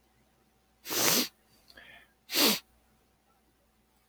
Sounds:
Sniff